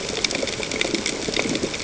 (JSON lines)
{"label": "ambient", "recorder": "HydroMoth"}